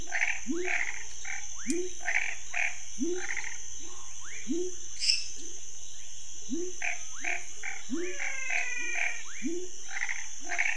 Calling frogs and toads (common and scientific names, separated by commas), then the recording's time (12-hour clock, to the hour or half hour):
Chaco tree frog (Boana raniceps), Cuyaba dwarf frog (Physalaemus nattereri), pepper frog (Leptodactylus labyrinthicus), rufous frog (Leptodactylus fuscus), lesser tree frog (Dendropsophus minutus), menwig frog (Physalaemus albonotatus)
7:30pm